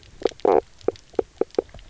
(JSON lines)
{"label": "biophony, knock croak", "recorder": "SoundTrap 300"}